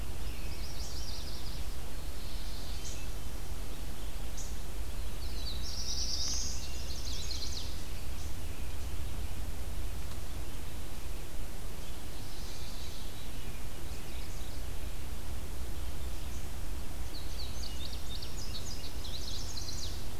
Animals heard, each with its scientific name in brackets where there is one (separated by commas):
Mourning Warbler (Geothlypis philadelphia), Chestnut-sided Warbler (Setophaga pensylvanica), unidentified call, Yellow-rumped Warbler (Setophaga coronata), Indigo Bunting (Passerina cyanea), Black-throated Blue Warbler (Setophaga caerulescens)